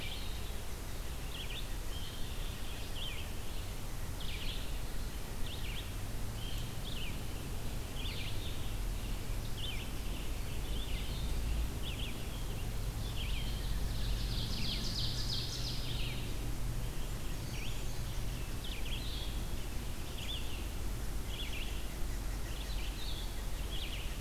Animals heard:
Blue-headed Vireo (Vireo solitarius), Black-capped Chickadee (Poecile atricapillus), Brown Creeper (Certhia americana), Ovenbird (Seiurus aurocapilla), Red-eyed Vireo (Vireo olivaceus), unidentified call

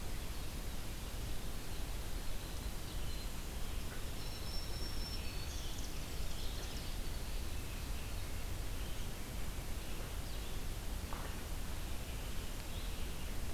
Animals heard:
Chimney Swift (Chaetura pelagica), Winter Wren (Troglodytes hiemalis), Red-eyed Vireo (Vireo olivaceus), Black-throated Green Warbler (Setophaga virens)

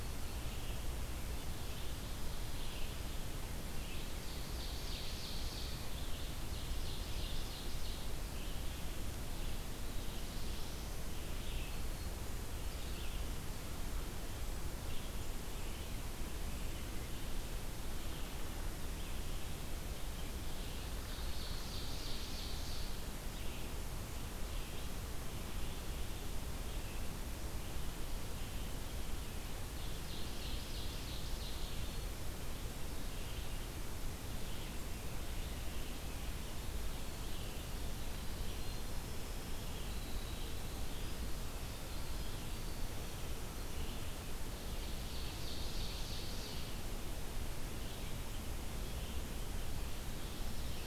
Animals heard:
Red-eyed Vireo (Vireo olivaceus), Ovenbird (Seiurus aurocapilla), Winter Wren (Troglodytes hiemalis)

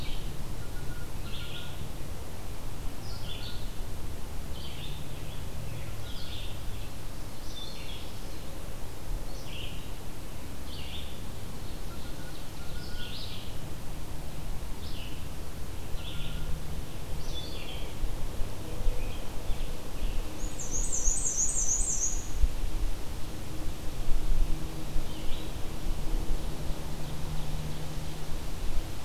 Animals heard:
Black-and-white Warbler (Mniotilta varia), Ovenbird (Seiurus aurocapilla), American Robin (Turdus migratorius), Red-eyed Vireo (Vireo olivaceus)

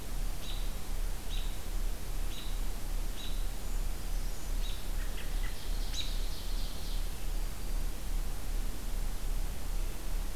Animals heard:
American Robin (Turdus migratorius), Ovenbird (Seiurus aurocapilla), Black-throated Green Warbler (Setophaga virens), Brown Creeper (Certhia americana)

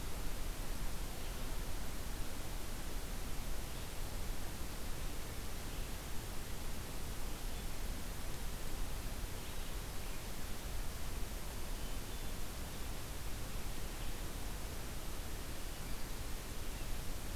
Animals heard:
Hermit Thrush (Catharus guttatus), Red-eyed Vireo (Vireo olivaceus)

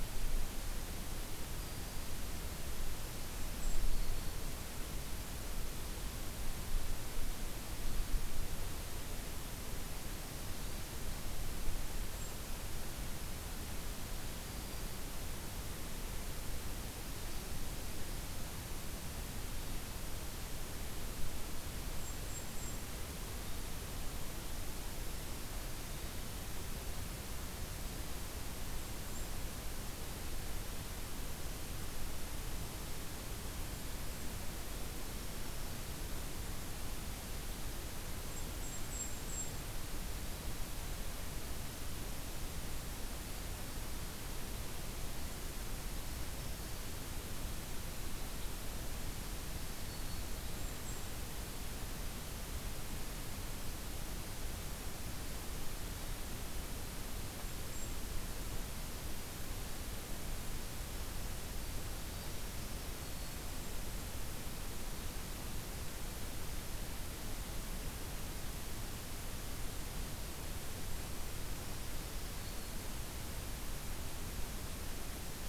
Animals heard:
Golden-crowned Kinglet (Regulus satrapa), Black-throated Green Warbler (Setophaga virens)

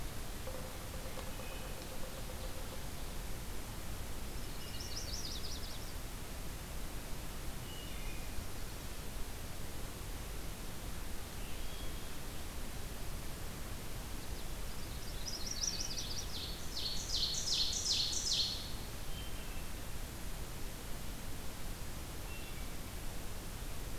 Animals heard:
Chestnut-sided Warbler (Setophaga pensylvanica), American Goldfinch (Spinus tristis), Wood Thrush (Hylocichla mustelina), Ovenbird (Seiurus aurocapilla), Yellow-bellied Sapsucker (Sphyrapicus varius)

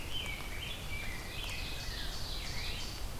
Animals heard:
Rose-breasted Grosbeak (Pheucticus ludovicianus), Ovenbird (Seiurus aurocapilla)

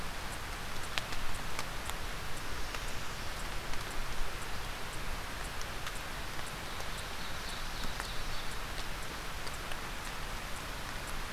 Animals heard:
Ovenbird (Seiurus aurocapilla), Northern Parula (Setophaga americana)

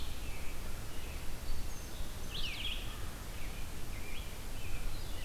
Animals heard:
Song Sparrow (Melospiza melodia), American Robin (Turdus migratorius), Red-eyed Vireo (Vireo olivaceus)

